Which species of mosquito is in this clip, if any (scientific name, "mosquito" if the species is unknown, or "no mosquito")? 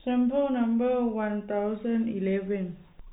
no mosquito